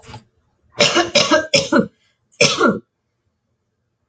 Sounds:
Cough